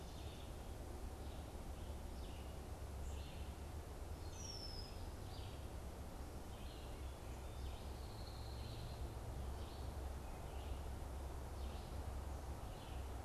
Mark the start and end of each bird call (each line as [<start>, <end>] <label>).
[0.00, 13.18] Red-eyed Vireo (Vireo olivaceus)
[4.18, 5.08] Red-winged Blackbird (Agelaius phoeniceus)